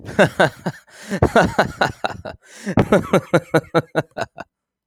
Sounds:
Laughter